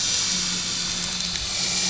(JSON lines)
{"label": "anthrophony, boat engine", "recorder": "SoundTrap 500"}